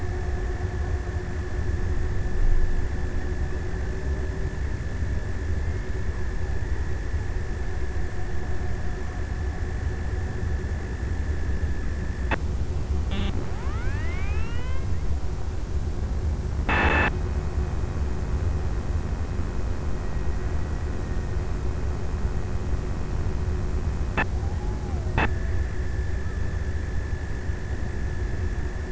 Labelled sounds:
23.2	26.2	killer whale, Bigg's (transient), 0.45 to 1.1 kHz

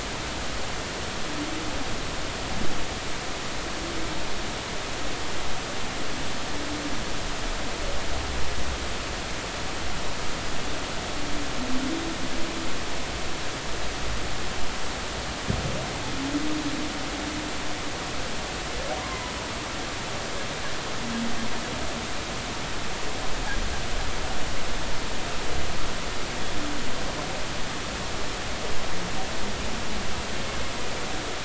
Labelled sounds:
19.0	19.3	humpback whale, 0.93 to 1.2 kHz

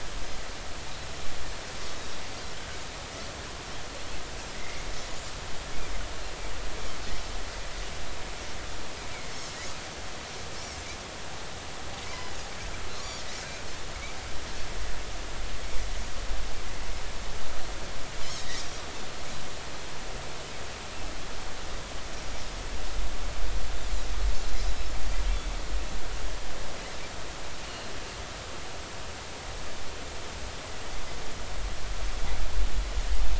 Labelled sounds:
4.5	4.9	Pacific white-sided dolphin, 1.8 to 2.3 kHz
12.1	12.4	Pacific white-sided dolphin, 2.9 to 3.1 kHz
18.4	18.6	Pacific white-sided dolphin, 3.6 to 4.0 kHz

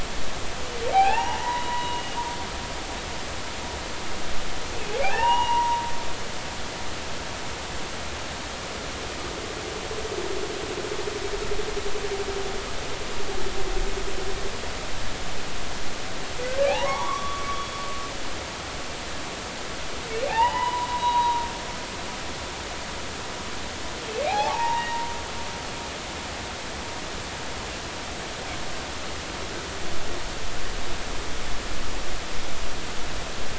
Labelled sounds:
0.9	2.1	humpback whale, 0.80 to 4.0 kHz
5.0	5.8	humpback whale, 0.80 to 2.9 kHz
16.6	17.5	humpback whale, 0.80 to 3.0 kHz
20.3	21.4	humpback whale, 0.80 to 5.0 kHz
24.3	25.0	humpback whale, 0.80 to 2.0 kHz

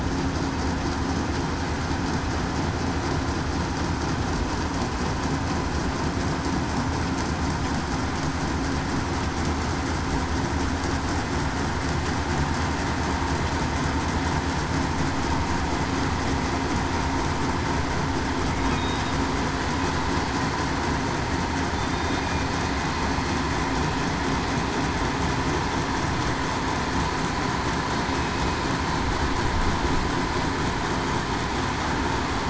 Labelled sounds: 21.7	22.2	killer whale, southern resident, 3.5 to 3.7 kHz

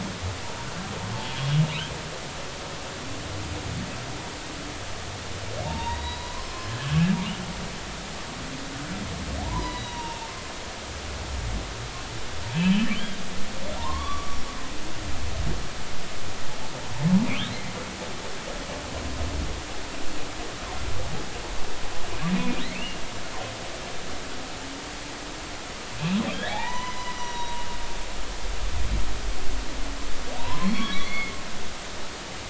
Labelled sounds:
5.6	6.7	humpback whale, 0.86 to 4.0 kHz
9.4	10.3	humpback whale, 0.80 to 5.8 kHz
12.6	14.4	humpback whale, 0.83 to 3.3 kHz
17.5	17.7	humpback whale, 1.9 to 2.2 kHz
22.3	23.0	humpback whale, 1.8 to 2.9 kHz
26.3	27.6	humpback whale, 0.80 to 6.0 kHz
30.4	31.3	humpback whale, 0.86 to 3.6 kHz

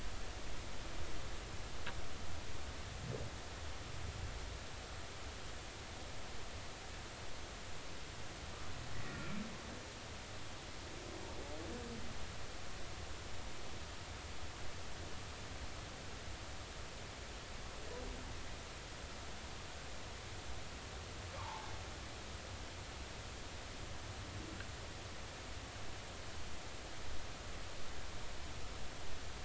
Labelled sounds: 8.9	9.3	humpback whale, 1.8 to 2.0 kHz
21.4	21.7	humpback whale, 0.80 to 1.2 kHz

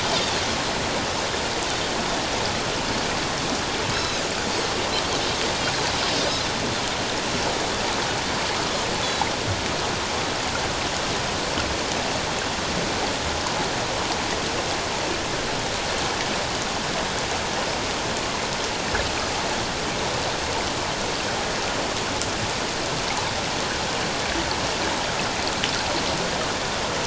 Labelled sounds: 3.9	4.2	Pacific white-sided dolphin, 3.7 to 5.4 kHz

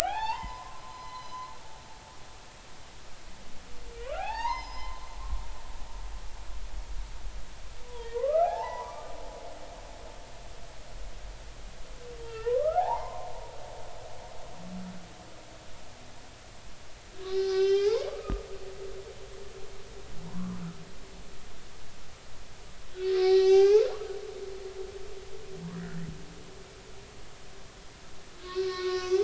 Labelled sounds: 0.0	1.4	humpback whale, 0.80 to 5.2 kHz
4.0	5.1	humpback whale, 0.80 to 6.3 kHz
8.2	9.1	humpback whale, 0.80 to 1.4 kHz
12.2	13.3	humpback whale, 0.80 to 2.9 kHz
17.2	18.5	humpback whale, 0.80 to 6.0 kHz
20.2	20.6	humpback whale, 0.86 to 1.2 kHz
23.2	24.0	humpback whale, 0.80 to 6.3 kHz
25.7	26.0	humpback whale, 1.3 to 2.0 kHz
28.4	29.2	humpback whale, 1.0 to 4.4 kHz

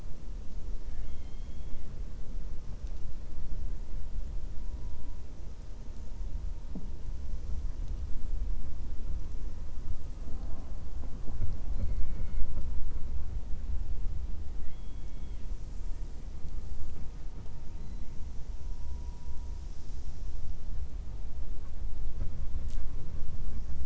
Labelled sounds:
0.8	1.9	killer whale, 1.3 to 4.2 kHz
14.5	15.5	killer whale, 1.9 to 3.9 kHz

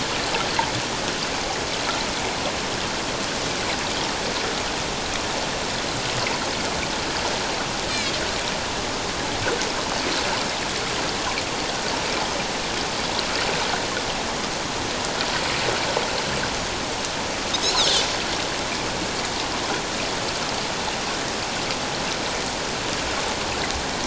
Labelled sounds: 7.9	8.1	Pacific white-sided dolphin, 3.8 to 4.2 kHz
17.6	18.1	Pacific white-sided dolphin, 5.9 to 6.9 kHz

